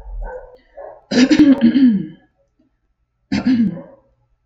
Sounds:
Throat clearing